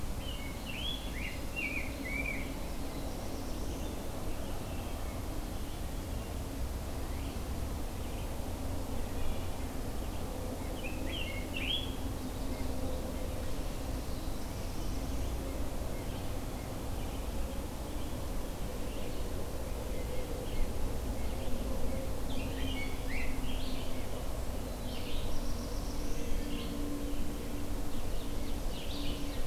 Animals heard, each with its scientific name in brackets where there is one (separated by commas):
Ovenbird (Seiurus aurocapilla), Red-eyed Vireo (Vireo olivaceus), Black-throated Blue Warbler (Setophaga caerulescens), Rose-breasted Grosbeak (Pheucticus ludovicianus), Wood Thrush (Hylocichla mustelina)